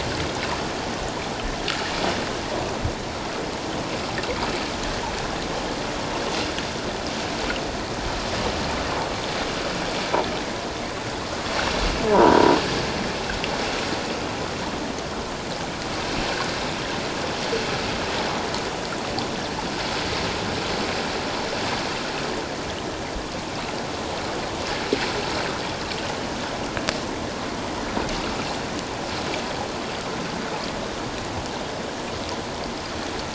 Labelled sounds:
12.1	12.6	croaking sound likely from a nearby submerged object, 0.88 to 1.0 kHz

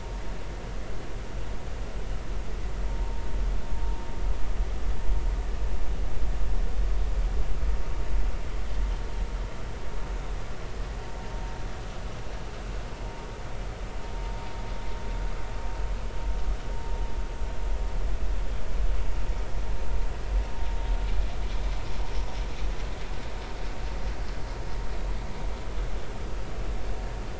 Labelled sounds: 2.9	3.2	vessel noise, 0.86 to 0.99 kHz

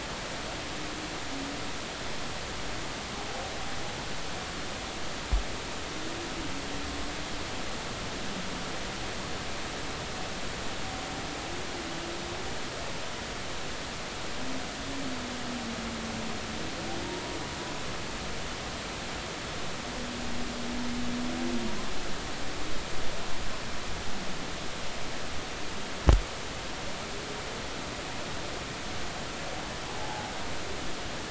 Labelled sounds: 30.0	30.3	humpback whale, 0.80 to 0.96 kHz

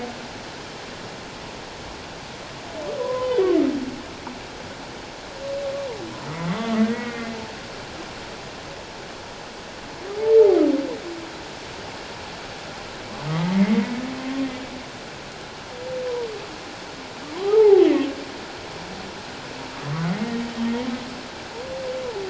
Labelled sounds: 3.0	3.4	humpback whale, 0.88 to 3.1 kHz
6.9	7.3	humpback whale, 1.8 to 2.2 kHz
13.3	14.5	humpback whale, 0.84 to 2.2 kHz
17.3	17.9	humpback whale, 0.78 to 1.3 kHz
20.1	20.3	humpback whale, 1.8 to 2.2 kHz

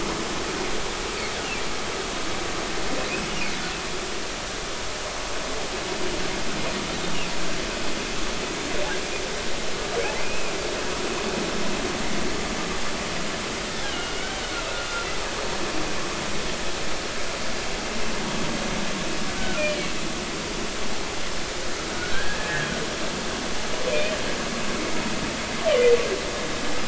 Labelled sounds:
10.2	10.6	humpback whale, 2.3 to 2.8 kHz
13.9	14.4	humpback whale, 1.3 to 3.0 kHz
19.4	19.6	humpback whale, 1.3 to 1.6 kHz
21.9	22.7	humpback whale, 1.4 to 1.9 kHz
23.9	24.1	humpback whale, 2.3 to 2.6 kHz

